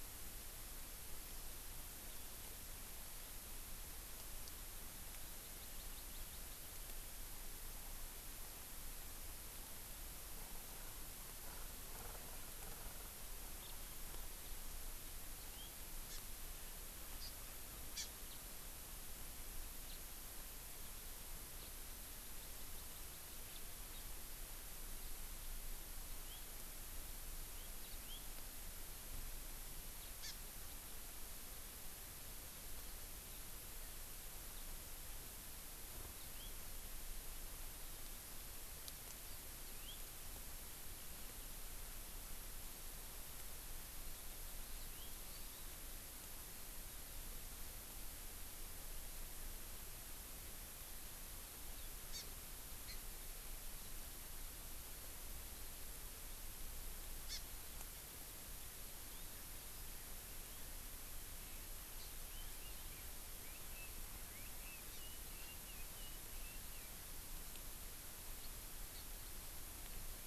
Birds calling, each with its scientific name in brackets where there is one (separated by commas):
House Finch (Haemorhous mexicanus), Red-billed Leiothrix (Leiothrix lutea), Hawaii Amakihi (Chlorodrepanis virens)